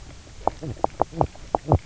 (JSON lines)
{"label": "biophony, knock croak", "recorder": "SoundTrap 300"}